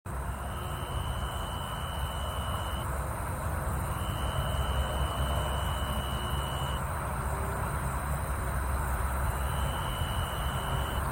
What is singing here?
Oecanthus niveus, an orthopteran